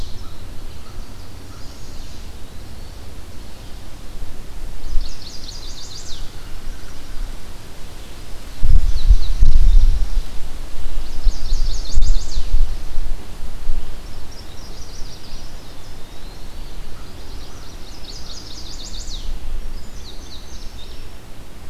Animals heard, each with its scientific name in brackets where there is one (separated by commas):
Chestnut-sided Warbler (Setophaga pensylvanica), American Crow (Corvus brachyrhynchos), Indigo Bunting (Passerina cyanea), Eastern Wood-Pewee (Contopus virens)